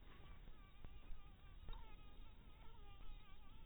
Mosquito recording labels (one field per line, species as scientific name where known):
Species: mosquito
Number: one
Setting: cup